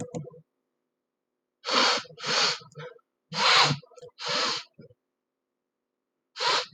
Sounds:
Sniff